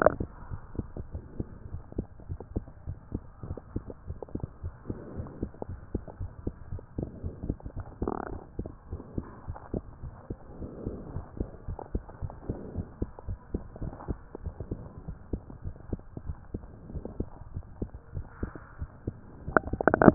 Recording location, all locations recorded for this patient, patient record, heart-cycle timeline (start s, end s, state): tricuspid valve (TV)
aortic valve (AV)+pulmonary valve (PV)+tricuspid valve (TV)+mitral valve (MV)
#Age: Child
#Sex: Male
#Height: 117.0 cm
#Weight: 12.0 kg
#Pregnancy status: False
#Murmur: Absent
#Murmur locations: nan
#Most audible location: nan
#Systolic murmur timing: nan
#Systolic murmur shape: nan
#Systolic murmur grading: nan
#Systolic murmur pitch: nan
#Systolic murmur quality: nan
#Diastolic murmur timing: nan
#Diastolic murmur shape: nan
#Diastolic murmur grading: nan
#Diastolic murmur pitch: nan
#Diastolic murmur quality: nan
#Outcome: Normal
#Campaign: 2015 screening campaign
0.00	1.50	unannotated
1.50	1.70	diastole
1.70	1.84	S1
1.84	1.96	systole
1.96	2.08	S2
2.08	2.28	diastole
2.28	2.38	S1
2.38	2.52	systole
2.52	2.68	S2
2.68	2.86	diastole
2.86	2.98	S1
2.98	3.12	systole
3.12	3.22	S2
3.22	3.44	diastole
3.44	3.58	S1
3.58	3.72	systole
3.72	3.86	S2
3.86	4.06	diastole
4.06	4.18	S1
4.18	4.34	systole
4.34	4.50	S2
4.50	4.64	diastole
4.64	4.74	S1
4.74	4.86	systole
4.86	4.98	S2
4.98	5.16	diastole
5.16	5.30	S1
5.30	5.40	systole
5.40	5.52	S2
5.52	5.70	diastole
5.70	5.80	S1
5.80	5.90	systole
5.90	6.02	S2
6.02	6.18	diastole
6.18	6.32	S1
6.32	6.44	systole
6.44	6.54	S2
6.54	6.70	diastole
6.70	6.84	S1
6.84	6.96	systole
6.96	7.10	S2
7.10	7.24	diastole
7.24	7.34	S1
7.34	7.42	systole
7.42	7.58	S2
7.58	7.76	diastole
7.76	7.86	S1
7.86	8.00	systole
8.00	8.14	S2
8.14	8.30	diastole
8.30	8.40	S1
8.40	8.58	systole
8.58	8.70	S2
8.70	8.90	diastole
8.90	9.02	S1
9.02	9.16	systole
9.16	9.26	S2
9.26	9.48	diastole
9.48	9.58	S1
9.58	9.72	systole
9.72	9.86	S2
9.86	10.04	diastole
10.04	10.16	S1
10.16	10.30	systole
10.30	10.38	S2
10.38	10.58	diastole
10.58	10.72	S1
10.72	10.84	systole
10.84	10.98	S2
10.98	11.12	diastole
11.12	11.26	S1
11.26	11.38	systole
11.38	11.50	S2
11.50	11.68	diastole
11.68	11.80	S1
11.80	11.90	systole
11.90	12.02	S2
12.02	12.20	diastole
12.20	12.34	S1
12.34	12.48	systole
12.48	12.62	S2
12.62	12.76	diastole
12.76	12.90	S1
12.90	13.00	systole
13.00	13.12	S2
13.12	13.28	diastole
13.28	13.40	S1
13.40	13.50	systole
13.50	13.66	S2
13.66	13.82	diastole
13.82	13.94	S1
13.94	14.08	systole
14.08	14.20	S2
14.20	14.42	diastole
14.42	14.54	S1
14.54	14.70	systole
14.70	14.84	S2
14.84	15.04	diastole
15.04	15.18	S1
15.18	15.30	systole
15.30	15.46	S2
15.46	15.66	diastole
15.66	15.74	S1
15.74	15.88	systole
15.88	16.04	S2
16.04	16.24	diastole
16.24	16.38	S1
16.38	16.54	systole
16.54	16.70	S2
16.70	16.90	diastole
16.90	17.04	S1
17.04	17.18	systole
17.18	17.30	S2
17.30	17.52	diastole
17.52	17.66	S1
17.66	17.78	systole
17.78	17.92	S2
17.92	18.14	diastole
18.14	18.28	S1
18.28	18.42	systole
18.42	18.56	S2
18.56	18.78	diastole
18.78	18.92	S1
18.92	19.06	systole
19.06	19.16	S2
19.16	20.14	unannotated